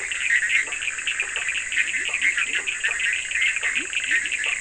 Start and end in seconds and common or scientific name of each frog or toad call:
0.0	4.0	Bischoff's tree frog
0.0	4.0	blacksmith tree frog
0.0	4.0	Cochran's lime tree frog
0.0	4.6	Leptodactylus latrans